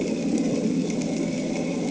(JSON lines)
{"label": "anthrophony, boat engine", "recorder": "HydroMoth"}